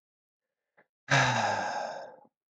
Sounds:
Sigh